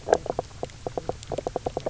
{"label": "biophony, knock croak", "recorder": "SoundTrap 300"}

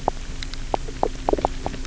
{"label": "biophony, knock croak", "recorder": "SoundTrap 300"}
{"label": "anthrophony, boat engine", "recorder": "SoundTrap 300"}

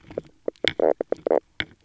{"label": "biophony, knock croak", "recorder": "SoundTrap 300"}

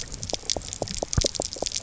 {"label": "biophony, knock", "recorder": "SoundTrap 300"}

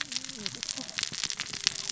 {"label": "biophony, cascading saw", "recorder": "SoundTrap 600 or HydroMoth"}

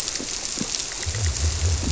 {"label": "biophony", "recorder": "SoundTrap 300"}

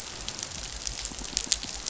{"label": "biophony, pulse", "recorder": "SoundTrap 500"}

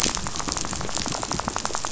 {"label": "biophony, rattle", "recorder": "SoundTrap 500"}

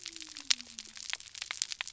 {"label": "biophony", "recorder": "SoundTrap 300"}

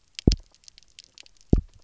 {"label": "biophony, double pulse", "recorder": "SoundTrap 300"}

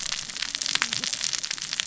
{"label": "biophony, cascading saw", "recorder": "SoundTrap 600 or HydroMoth"}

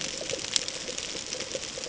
{"label": "ambient", "recorder": "HydroMoth"}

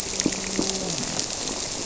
{"label": "biophony", "recorder": "SoundTrap 300"}
{"label": "biophony, grouper", "recorder": "SoundTrap 300"}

